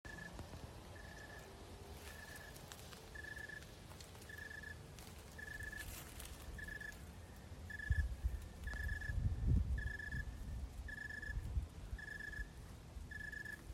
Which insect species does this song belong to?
Oecanthus rileyi